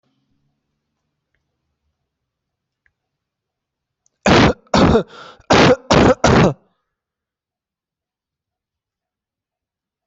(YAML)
expert_labels:
- quality: good
  cough_type: dry
  dyspnea: false
  wheezing: false
  stridor: false
  choking: false
  congestion: false
  nothing: true
  diagnosis: upper respiratory tract infection
  severity: mild
age: 20
gender: male
respiratory_condition: false
fever_muscle_pain: false
status: healthy